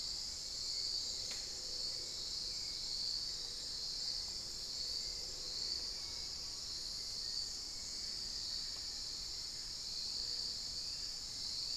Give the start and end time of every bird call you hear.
0.0s-11.8s: Hauxwell's Thrush (Turdus hauxwelli)
5.0s-6.8s: Amazonian Pygmy-Owl (Glaucidium hardyi)
6.9s-11.8s: Black-faced Antthrush (Formicarius analis)
9.6s-11.8s: Gray Antwren (Myrmotherula menetriesii)

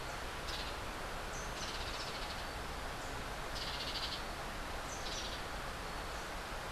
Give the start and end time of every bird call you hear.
1.4s-2.5s: Hoffmann's Woodpecker (Melanerpes hoffmannii)
3.4s-4.4s: Hoffmann's Woodpecker (Melanerpes hoffmannii)
5.0s-5.4s: Hoffmann's Woodpecker (Melanerpes hoffmannii)

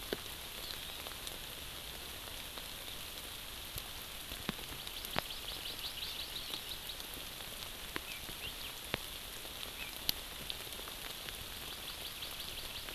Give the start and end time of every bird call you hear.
4.8s-7.1s: Hawaii Amakihi (Chlorodrepanis virens)
8.4s-8.7s: Hawaii Elepaio (Chasiempis sandwichensis)
11.7s-12.9s: Hawaii Amakihi (Chlorodrepanis virens)

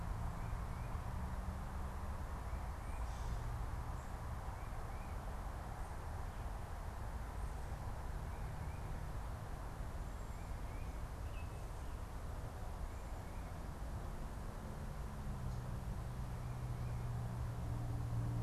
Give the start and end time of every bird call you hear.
0.0s-18.4s: Tufted Titmouse (Baeolophus bicolor)
11.0s-11.7s: Baltimore Oriole (Icterus galbula)

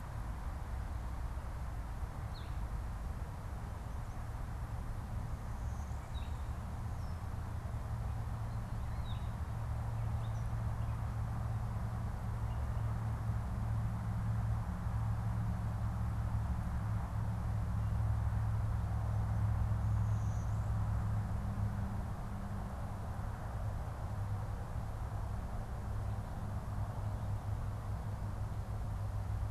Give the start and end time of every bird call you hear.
6.0s-6.4s: Gray Catbird (Dumetella carolinensis)
8.8s-9.5s: Gray Catbird (Dumetella carolinensis)
19.8s-21.2s: Blue-winged Warbler (Vermivora cyanoptera)

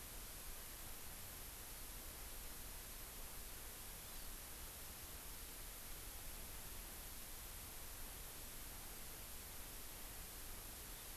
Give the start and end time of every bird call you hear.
4.1s-4.4s: Hawaii Amakihi (Chlorodrepanis virens)

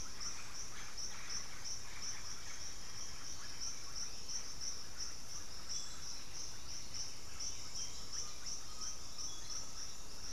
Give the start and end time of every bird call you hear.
0.0s-10.3s: Russet-backed Oropendola (Psarocolius angustifrons)
1.7s-3.9s: Chestnut-winged Foliage-gleaner (Dendroma erythroptera)
5.5s-9.8s: unidentified bird
7.9s-10.3s: Undulated Tinamou (Crypturellus undulatus)

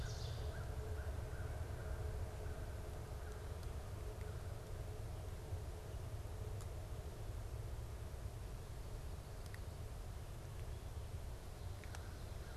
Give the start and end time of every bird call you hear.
0.0s-0.7s: Ovenbird (Seiurus aurocapilla)
0.0s-4.6s: American Crow (Corvus brachyrhynchos)

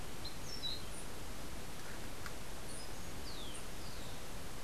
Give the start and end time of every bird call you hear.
0.1s-1.1s: Orange-billed Nightingale-Thrush (Catharus aurantiirostris)
2.6s-4.3s: Rufous-collared Sparrow (Zonotrichia capensis)

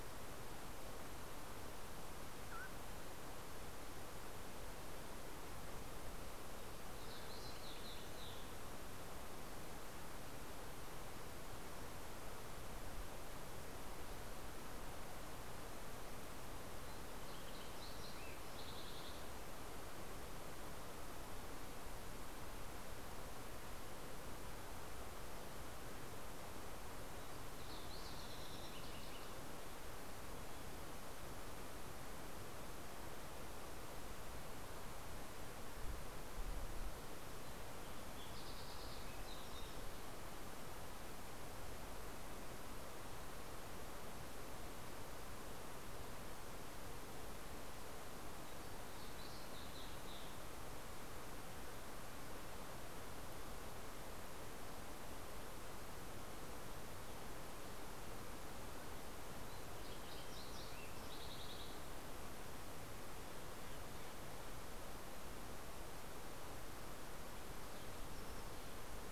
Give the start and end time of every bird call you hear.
6.6s-8.7s: Steller's Jay (Cyanocitta stelleri)
16.8s-19.4s: Fox Sparrow (Passerella iliaca)
27.2s-29.8s: Fox Sparrow (Passerella iliaca)
37.7s-40.0s: Fox Sparrow (Passerella iliaca)
48.4s-50.6s: Fox Sparrow (Passerella iliaca)
58.6s-62.2s: Fox Sparrow (Passerella iliaca)

